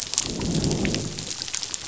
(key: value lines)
label: biophony, growl
recorder: SoundTrap 500